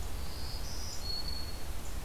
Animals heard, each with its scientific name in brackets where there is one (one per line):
Black-throated Green Warbler (Setophaga virens)